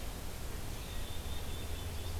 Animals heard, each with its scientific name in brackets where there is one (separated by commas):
Black-capped Chickadee (Poecile atricapillus)